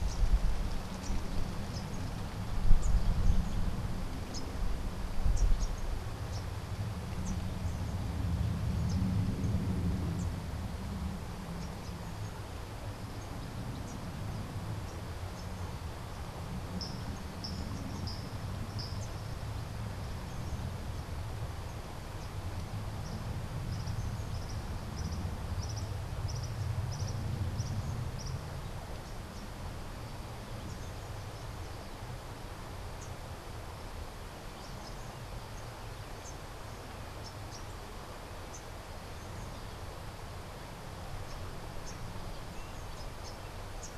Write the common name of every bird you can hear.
Rufous-capped Warbler, unidentified bird, Cabanis's Wren